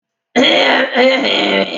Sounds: Throat clearing